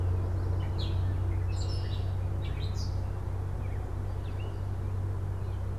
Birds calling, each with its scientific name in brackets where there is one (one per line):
Gray Catbird (Dumetella carolinensis)